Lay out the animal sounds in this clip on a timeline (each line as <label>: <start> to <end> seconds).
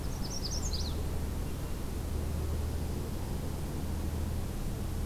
Magnolia Warbler (Setophaga magnolia): 0.0 to 1.0 seconds
Hermit Thrush (Catharus guttatus): 1.1 to 1.9 seconds
Dark-eyed Junco (Junco hyemalis): 2.3 to 3.7 seconds